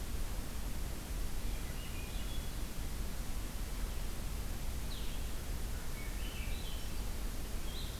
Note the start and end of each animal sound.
[1.33, 2.50] Swainson's Thrush (Catharus ustulatus)
[4.71, 7.99] Blue-headed Vireo (Vireo solitarius)
[5.63, 6.97] Swainson's Thrush (Catharus ustulatus)

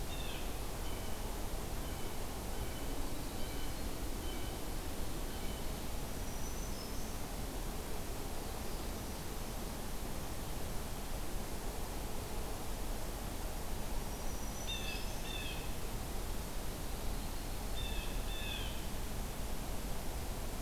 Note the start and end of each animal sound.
[0.00, 5.61] Blue Jay (Cyanocitta cristata)
[5.93, 7.19] Black-throated Green Warbler (Setophaga virens)
[14.03, 15.35] Black-throated Green Warbler (Setophaga virens)
[14.59, 15.78] Blue Jay (Cyanocitta cristata)
[17.62, 18.86] Blue Jay (Cyanocitta cristata)

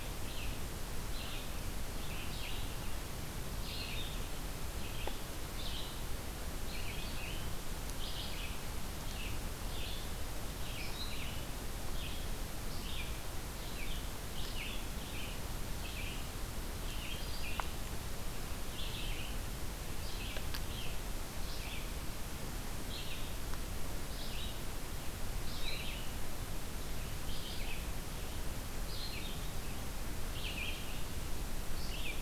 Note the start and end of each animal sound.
[0.00, 11.55] Red-eyed Vireo (Vireo olivaceus)
[11.81, 32.21] Red-eyed Vireo (Vireo olivaceus)

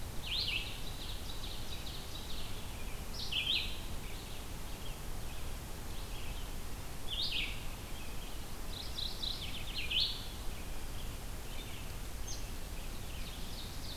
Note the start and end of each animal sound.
[0.00, 13.96] Red-eyed Vireo (Vireo olivaceus)
[0.17, 2.77] Ovenbird (Seiurus aurocapilla)
[8.66, 9.79] Mourning Warbler (Geothlypis philadelphia)
[12.96, 13.96] Ovenbird (Seiurus aurocapilla)

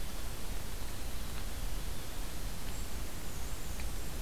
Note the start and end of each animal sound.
[2.58, 2.94] Golden-crowned Kinglet (Regulus satrapa)
[3.04, 4.21] Black-and-white Warbler (Mniotilta varia)

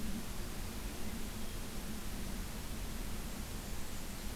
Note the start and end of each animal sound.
[3.15, 4.36] Blackburnian Warbler (Setophaga fusca)

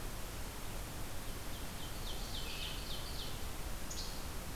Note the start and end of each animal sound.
[1.40, 3.53] Ovenbird (Seiurus aurocapilla)
[3.87, 4.34] Least Flycatcher (Empidonax minimus)

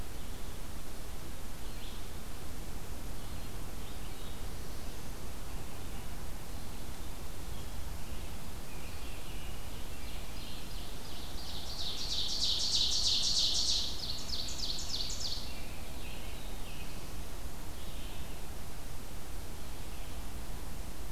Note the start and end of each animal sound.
[0.00, 21.12] Red-eyed Vireo (Vireo olivaceus)
[8.42, 10.35] American Robin (Turdus migratorius)
[9.58, 15.60] Ovenbird (Seiurus aurocapilla)
[13.99, 17.25] American Robin (Turdus migratorius)

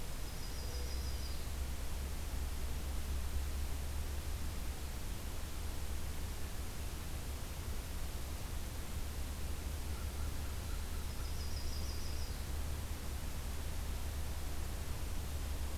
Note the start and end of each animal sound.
[0.00, 1.52] Yellow-rumped Warbler (Setophaga coronata)
[9.81, 11.29] American Crow (Corvus brachyrhynchos)
[11.03, 12.38] Yellow-rumped Warbler (Setophaga coronata)

